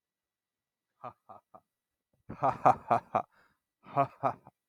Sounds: Laughter